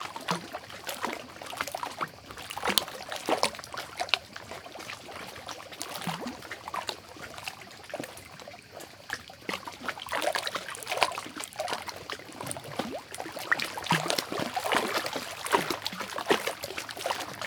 Is the person on solid ground?
no